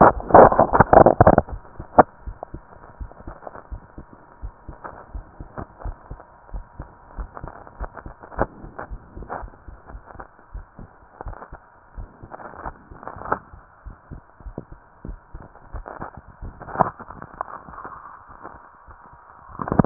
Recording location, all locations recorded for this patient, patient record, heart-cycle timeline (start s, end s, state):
pulmonary valve (PV)
aortic valve (AV)+pulmonary valve (PV)+tricuspid valve (TV)+mitral valve (MV)
#Age: Child
#Sex: Female
#Height: 146.0 cm
#Weight: 44.3 kg
#Pregnancy status: False
#Murmur: Absent
#Murmur locations: nan
#Most audible location: nan
#Systolic murmur timing: nan
#Systolic murmur shape: nan
#Systolic murmur grading: nan
#Systolic murmur pitch: nan
#Systolic murmur quality: nan
#Diastolic murmur timing: nan
#Diastolic murmur shape: nan
#Diastolic murmur grading: nan
#Diastolic murmur pitch: nan
#Diastolic murmur quality: nan
#Outcome: Normal
#Campaign: 2015 screening campaign
0.00	2.96	unannotated
2.96	3.12	S1
3.12	3.24	systole
3.24	3.36	S2
3.36	3.70	diastole
3.70	3.82	S1
3.82	3.94	systole
3.94	4.04	S2
4.04	4.42	diastole
4.42	4.54	S1
4.54	4.68	systole
4.68	4.78	S2
4.78	5.12	diastole
5.12	5.26	S1
5.26	5.38	systole
5.38	5.50	S2
5.50	5.82	diastole
5.82	5.96	S1
5.96	6.08	systole
6.08	6.20	S2
6.20	6.52	diastole
6.52	6.66	S1
6.66	6.76	systole
6.76	6.88	S2
6.88	7.16	diastole
7.16	7.28	S1
7.28	7.40	systole
7.40	7.50	S2
7.50	7.78	diastole
7.78	7.90	S1
7.90	8.04	systole
8.04	8.15	S2
8.15	8.36	diastole
8.36	8.50	S1
8.50	19.86	unannotated